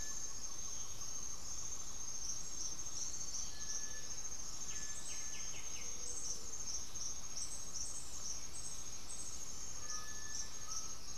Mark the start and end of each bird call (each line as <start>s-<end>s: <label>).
0.0s-2.2s: Great Antshrike (Taraba major)
0.0s-6.4s: White-winged Becard (Pachyramphus polychopterus)
0.0s-11.2s: Cinereous Tinamou (Crypturellus cinereus)
0.0s-11.2s: Gray-fronted Dove (Leptotila rufaxilla)
9.6s-11.2s: Undulated Tinamou (Crypturellus undulatus)